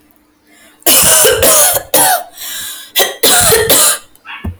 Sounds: Cough